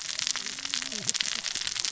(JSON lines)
{"label": "biophony, cascading saw", "recorder": "SoundTrap 600 or HydroMoth"}